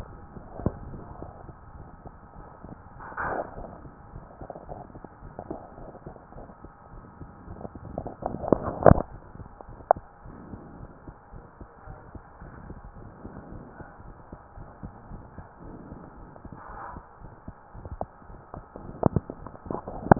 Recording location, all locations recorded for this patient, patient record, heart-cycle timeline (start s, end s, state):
aortic valve (AV)
aortic valve (AV)+pulmonary valve (PV)+tricuspid valve (TV)+mitral valve (MV)
#Age: nan
#Sex: Female
#Height: nan
#Weight: nan
#Pregnancy status: True
#Murmur: Present
#Murmur locations: pulmonary valve (PV)+tricuspid valve (TV)
#Most audible location: pulmonary valve (PV)
#Systolic murmur timing: Holosystolic
#Systolic murmur shape: Plateau
#Systolic murmur grading: I/VI
#Systolic murmur pitch: Low
#Systolic murmur quality: Harsh
#Diastolic murmur timing: nan
#Diastolic murmur shape: nan
#Diastolic murmur grading: nan
#Diastolic murmur pitch: nan
#Diastolic murmur quality: nan
#Outcome: Normal
#Campaign: 2015 screening campaign
0.00	10.23	unannotated
10.23	10.36	S1
10.36	10.50	systole
10.50	10.60	S2
10.60	10.76	diastole
10.76	10.90	S1
10.90	11.08	systole
11.08	11.14	S2
11.14	11.34	diastole
11.34	11.44	S1
11.44	11.60	systole
11.60	11.68	S2
11.68	11.88	diastole
11.88	11.98	S1
11.98	12.14	systole
12.14	12.22	S2
12.22	12.42	diastole
12.42	12.54	S1
12.54	12.66	systole
12.66	12.78	S2
12.78	12.96	diastole
12.96	13.08	S1
13.08	13.24	systole
13.24	13.34	S2
13.34	13.48	diastole
13.48	13.62	S1
13.62	13.76	systole
13.76	13.86	S2
13.86	14.04	diastole
14.04	14.16	S1
14.16	14.32	systole
14.32	14.40	S2
14.40	14.58	diastole
14.58	14.68	S1
14.68	14.84	systole
14.84	14.92	S2
14.92	15.10	diastole
15.10	15.22	S1
15.22	15.38	systole
15.38	15.46	S2
15.46	15.64	diastole
15.64	15.78	S1
15.78	15.90	systole
15.90	16.00	S2
16.00	16.18	diastole
16.18	16.30	S1
16.30	16.42	systole
16.42	16.52	S2
16.52	16.70	diastole
16.70	16.80	S1
16.80	16.94	systole
16.94	17.04	S2
17.04	17.22	diastole
17.22	17.32	S1
17.32	17.48	systole
17.48	17.58	S2
17.58	17.76	diastole
17.76	17.86	S1
17.86	18.00	systole
18.00	18.08	S2
18.08	18.30	diastole
18.30	18.40	S1
18.40	18.56	systole
18.56	18.64	S2
18.64	18.80	diastole
18.80	20.19	unannotated